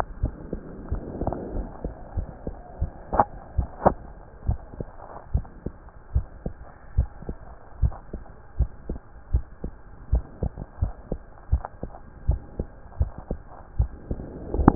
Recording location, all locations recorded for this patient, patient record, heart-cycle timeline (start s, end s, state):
tricuspid valve (TV)
aortic valve (AV)+pulmonary valve (PV)+tricuspid valve (TV)+mitral valve (MV)
#Age: Child
#Sex: Male
#Height: 143.0 cm
#Weight: 34.2 kg
#Pregnancy status: False
#Murmur: Absent
#Murmur locations: nan
#Most audible location: nan
#Systolic murmur timing: nan
#Systolic murmur shape: nan
#Systolic murmur grading: nan
#Systolic murmur pitch: nan
#Systolic murmur quality: nan
#Diastolic murmur timing: nan
#Diastolic murmur shape: nan
#Diastolic murmur grading: nan
#Diastolic murmur pitch: nan
#Diastolic murmur quality: nan
#Outcome: Normal
#Campaign: 2015 screening campaign
0.00	4.44	unannotated
4.44	4.60	S1
4.60	4.78	systole
4.78	4.88	S2
4.88	5.30	diastole
5.30	5.46	S1
5.46	5.62	systole
5.62	5.72	S2
5.72	6.12	diastole
6.12	6.26	S1
6.26	6.44	systole
6.44	6.56	S2
6.56	6.94	diastole
6.94	7.08	S1
7.08	7.26	systole
7.26	7.36	S2
7.36	7.80	diastole
7.80	7.94	S1
7.94	8.11	systole
8.11	8.22	S2
8.22	8.56	diastole
8.56	8.70	S1
8.70	8.88	systole
8.88	9.00	S2
9.00	9.30	diastole
9.30	9.44	S1
9.44	9.60	systole
9.60	9.72	S2
9.72	10.10	diastole
10.10	10.24	S1
10.24	10.40	systole
10.40	10.50	S2
10.50	10.80	diastole
10.80	10.92	S1
10.92	11.07	systole
11.07	11.20	S2
11.20	11.50	diastole
11.50	11.64	S1
11.64	11.79	systole
11.79	11.90	S2
11.90	12.26	diastole
12.26	12.40	S1
12.40	12.56	systole
12.56	12.68	S2
12.68	12.98	diastole
12.98	13.12	S1
13.12	13.28	systole
13.28	13.40	S2
13.40	13.76	diastole
13.76	13.92	S1
13.92	14.08	systole
14.08	14.20	S2
14.20	14.53	diastole
14.53	14.65	S1
14.65	14.75	unannotated